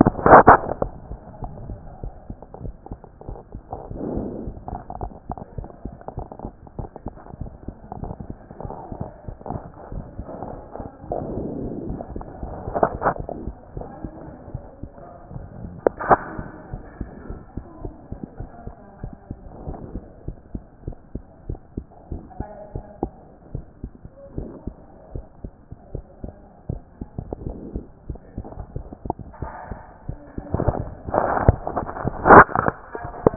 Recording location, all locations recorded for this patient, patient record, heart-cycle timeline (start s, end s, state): mitral valve (MV)
aortic valve (AV)+pulmonary valve (PV)+tricuspid valve (TV)+mitral valve (MV)
#Age: Child
#Sex: Female
#Height: 117.0 cm
#Weight: 24.0 kg
#Pregnancy status: False
#Murmur: Absent
#Murmur locations: nan
#Most audible location: nan
#Systolic murmur timing: nan
#Systolic murmur shape: nan
#Systolic murmur grading: nan
#Systolic murmur pitch: nan
#Systolic murmur quality: nan
#Diastolic murmur timing: nan
#Diastolic murmur shape: nan
#Diastolic murmur grading: nan
#Diastolic murmur pitch: nan
#Diastolic murmur quality: nan
#Outcome: Normal
#Campaign: 2014 screening campaign
0.00	16.56	unannotated
16.56	16.72	diastole
16.72	16.84	S1
16.84	17.00	systole
17.00	17.10	S2
17.10	17.28	diastole
17.28	17.40	S1
17.40	17.56	systole
17.56	17.64	S2
17.64	17.82	diastole
17.82	17.94	S1
17.94	18.10	systole
18.10	18.20	S2
18.20	18.38	diastole
18.38	18.50	S1
18.50	18.66	systole
18.66	18.74	S2
18.74	19.02	diastole
19.02	19.12	S1
19.12	19.28	systole
19.28	19.38	S2
19.38	19.66	diastole
19.66	19.78	S1
19.78	19.94	systole
19.94	20.04	S2
20.04	20.26	diastole
20.26	20.36	S1
20.36	20.54	systole
20.54	20.62	S2
20.62	20.86	diastole
20.86	20.96	S1
20.96	21.14	systole
21.14	21.22	S2
21.22	21.48	diastole
21.48	21.60	S1
21.60	21.76	systole
21.76	21.86	S2
21.86	22.10	diastole
22.10	22.22	S1
22.22	22.38	systole
22.38	22.48	S2
22.48	22.74	diastole
22.74	22.84	S1
22.84	23.02	systole
23.02	23.12	S2
23.12	23.54	diastole
23.54	23.64	S1
23.64	23.82	systole
23.82	23.92	S2
23.92	24.36	diastole
24.36	24.50	S1
24.50	24.66	systole
24.66	24.74	S2
24.74	25.14	diastole
25.14	25.24	S1
25.24	25.42	systole
25.42	25.52	S2
25.52	25.94	diastole
25.94	26.04	S1
26.04	26.22	systole
26.22	26.34	S2
26.34	26.70	diastole
26.70	26.82	S1
26.82	33.36	unannotated